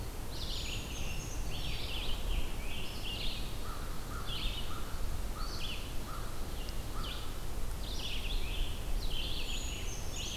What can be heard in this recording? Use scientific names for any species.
Vireo olivaceus, Piranga olivacea, Certhia americana, Corvus brachyrhynchos